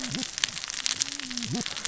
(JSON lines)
{"label": "biophony, cascading saw", "recorder": "SoundTrap 600 or HydroMoth"}